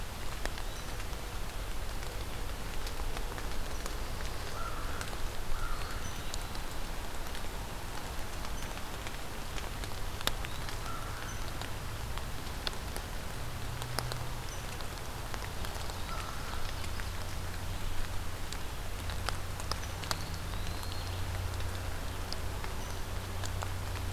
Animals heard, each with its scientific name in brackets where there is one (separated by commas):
Blue Jay (Cyanocitta cristata), American Crow (Corvus brachyrhynchos), Eastern Wood-Pewee (Contopus virens)